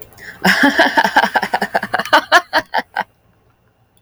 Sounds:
Laughter